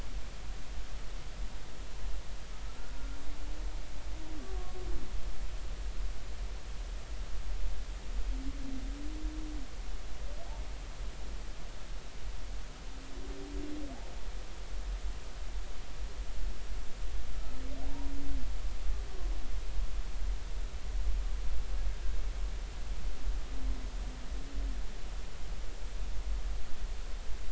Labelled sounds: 4.5	4.8	humpback whale, 1.1 to 1.2 kHz

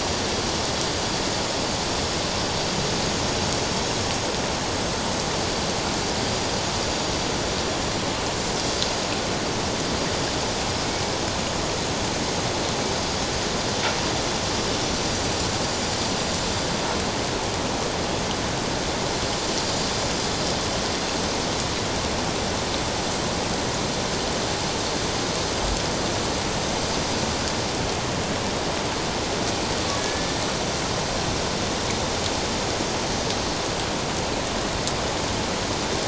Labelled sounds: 29.9	30.4	killer whale, Bigg's (transient), 1.7 to 1.8 kHz

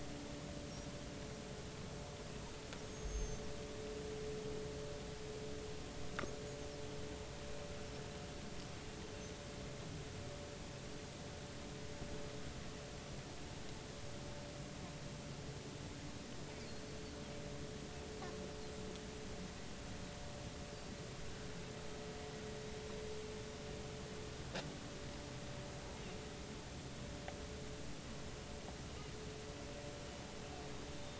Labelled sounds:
2.8	3.4	small unidentified odontocete, 6.2 to 6.6 kHz
31.0	31.1	small unidentified odontocete, 3.5 to 3.7 kHz

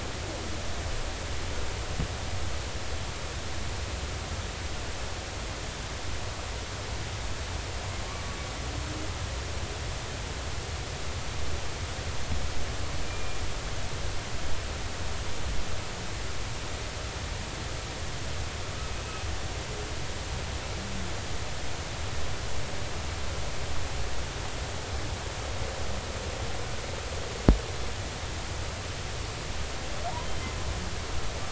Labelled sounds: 13.1	13.4	humpback whale, 2.3 to 2.5 kHz

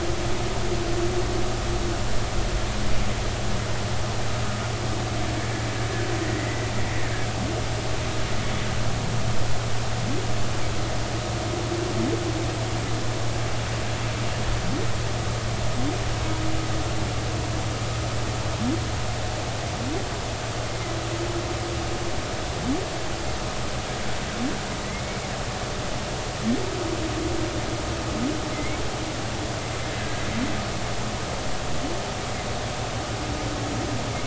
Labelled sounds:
6.2	6.7	humpback whale, 1.8 to 2.1 kHz
28.5	28.8	humpback whale, 2.0 to 2.3 kHz
30.0	30.2	humpback whale, 1.6 to 1.8 kHz

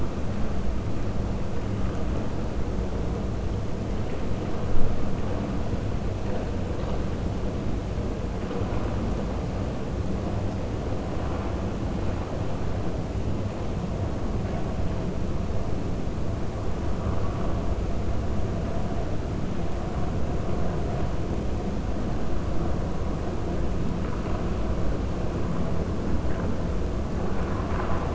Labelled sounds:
27.3	28.1	vessel noise, 0.66 to 2.8 kHz

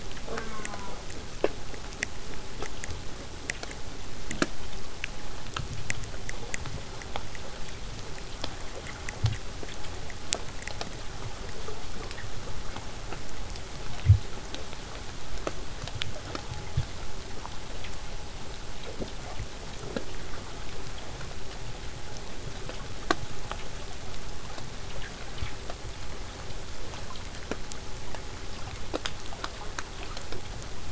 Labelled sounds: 0.2	1.0	killer whale, southern resident, J pod, call S04, 0.15 to 2.6 kHz
5.0	10.0	vessel noise, 0 to 8.0 kHz

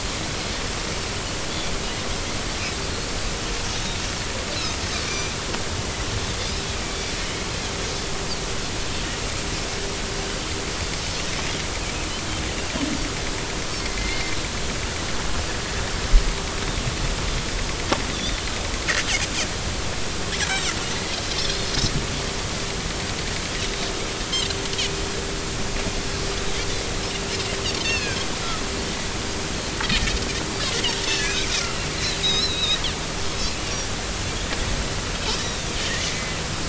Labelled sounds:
5.1	5.3	Pacific white-sided dolphin, 2.3 to 6.0 kHz
14.0	14.4	Pacific white-sided dolphin, 2.0 to 2.2 kHz
18.1	18.4	Pacific white-sided dolphin, 3.4 to 3.7 kHz
20.5	20.7	Pacific white-sided dolphin, 3.6 to 4.0 kHz
21.5	21.7	Pacific white-sided dolphin, 4.0 to 4.4 kHz
27.8	28.2	Pacific white-sided dolphin, 1.5 to 5.5 kHz
31.1	31.5	Pacific white-sided dolphin, 1.6 to 2.7 kHz
32.0	32.8	Pacific white-sided dolphin, 2.4 to 5.5 kHz
35.4	35.7	Pacific white-sided dolphin, 3.4 to 3.9 kHz

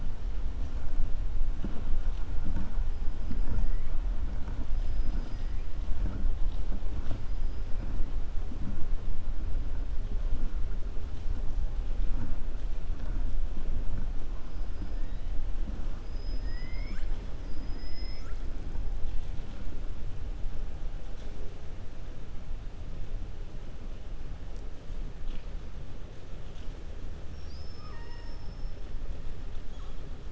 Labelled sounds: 4.7	5.6	killer whale, 1.9 to 6.1 kHz
15.9	18.4	killer whale, 1.2 to 7.9 kHz
27.7	28.4	killer whale, 0.90 to 2.9 kHz

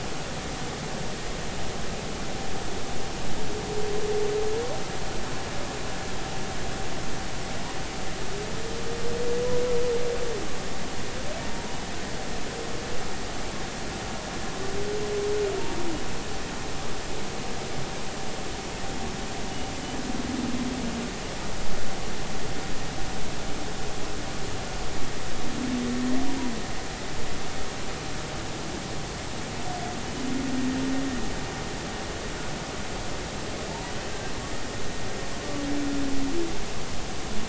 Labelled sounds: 33.7	33.9	humpback whale, 0.86 to 0.99 kHz

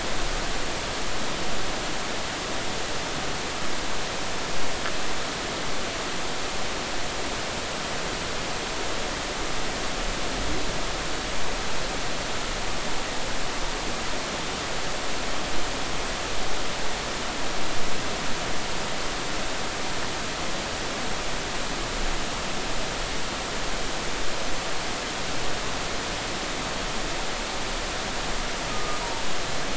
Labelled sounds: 28.7	29.0	humpback whale, 1.2 to 1.3 kHz

